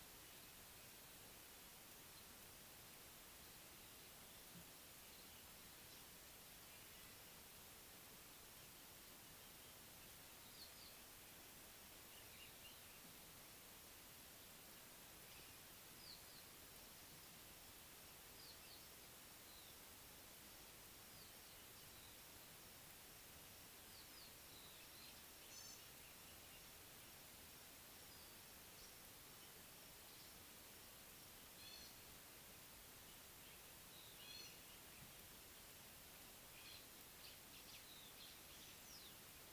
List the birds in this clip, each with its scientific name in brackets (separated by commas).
Gray-backed Camaroptera (Camaroptera brevicaudata)